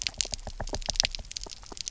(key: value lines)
label: biophony, knock
recorder: SoundTrap 300